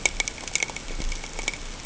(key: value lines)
label: ambient
recorder: HydroMoth